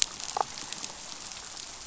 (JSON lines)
{"label": "biophony, damselfish", "recorder": "SoundTrap 500"}